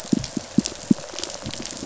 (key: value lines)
label: biophony, pulse
recorder: SoundTrap 500